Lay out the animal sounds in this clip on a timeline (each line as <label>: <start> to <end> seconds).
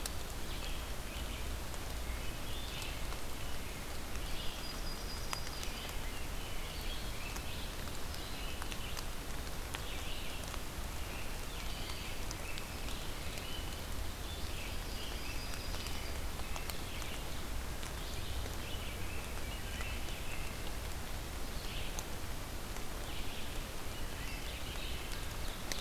Red-eyed Vireo (Vireo olivaceus): 0.0 to 25.8 seconds
Wood Thrush (Hylocichla mustelina): 1.9 to 2.5 seconds
Yellow-rumped Warbler (Setophaga coronata): 4.2 to 5.7 seconds
American Robin (Turdus migratorius): 5.3 to 7.8 seconds
American Robin (Turdus migratorius): 11.0 to 13.8 seconds
Yellow-rumped Warbler (Setophaga coronata): 14.4 to 16.2 seconds
American Robin (Turdus migratorius): 14.5 to 17.4 seconds
American Robin (Turdus migratorius): 18.5 to 20.8 seconds
Wood Thrush (Hylocichla mustelina): 23.8 to 24.7 seconds
Ovenbird (Seiurus aurocapilla): 25.1 to 25.8 seconds